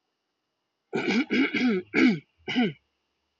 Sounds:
Throat clearing